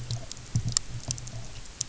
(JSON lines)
{"label": "anthrophony, boat engine", "recorder": "SoundTrap 300"}